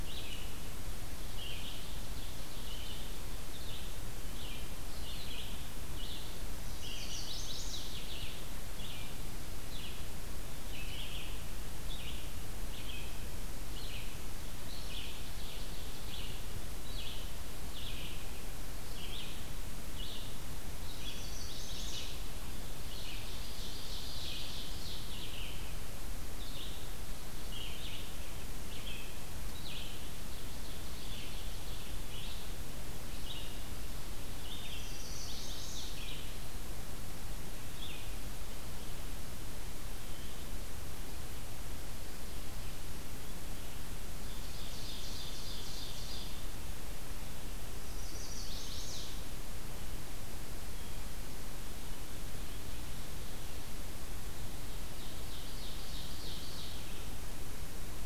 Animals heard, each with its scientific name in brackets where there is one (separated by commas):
Chestnut-sided Warbler (Setophaga pensylvanica), Ovenbird (Seiurus aurocapilla), Red-eyed Vireo (Vireo olivaceus)